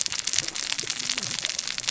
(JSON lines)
{"label": "biophony, cascading saw", "recorder": "SoundTrap 600 or HydroMoth"}